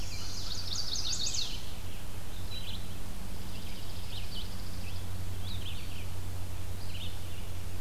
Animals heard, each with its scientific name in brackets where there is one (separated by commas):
Red-eyed Vireo (Vireo olivaceus), Chipping Sparrow (Spizella passerina), Chestnut-sided Warbler (Setophaga pensylvanica)